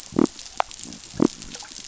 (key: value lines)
label: biophony
recorder: SoundTrap 500